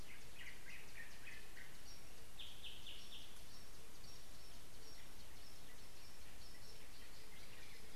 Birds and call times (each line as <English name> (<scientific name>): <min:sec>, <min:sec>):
Yellow-whiskered Greenbul (Eurillas latirostris): 0:02.9
Shelley's Starling (Lamprotornis shelleyi): 0:04.1